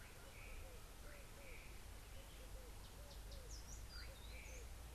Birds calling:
Red-eyed Dove (Streptopelia semitorquata)

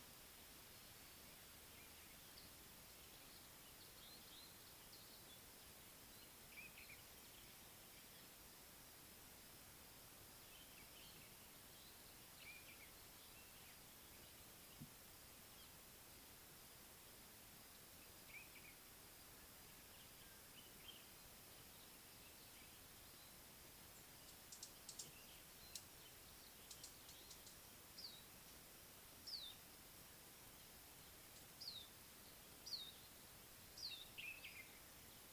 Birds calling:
Common Bulbul (Pycnonotus barbatus), Variable Sunbird (Cinnyris venustus)

